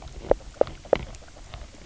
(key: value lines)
label: biophony, knock croak
recorder: SoundTrap 300